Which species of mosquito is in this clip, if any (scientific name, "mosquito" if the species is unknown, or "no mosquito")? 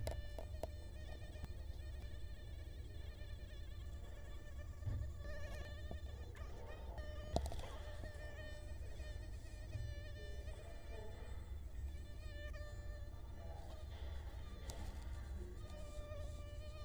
Culex quinquefasciatus